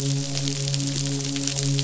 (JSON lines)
{"label": "biophony, midshipman", "recorder": "SoundTrap 500"}